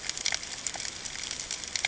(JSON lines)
{"label": "ambient", "recorder": "HydroMoth"}